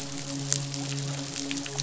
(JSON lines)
{"label": "biophony, midshipman", "recorder": "SoundTrap 500"}